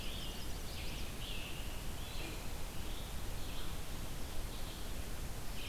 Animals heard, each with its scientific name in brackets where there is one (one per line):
Chestnut-sided Warbler (Setophaga pensylvanica)
Red-eyed Vireo (Vireo olivaceus)
American Robin (Turdus migratorius)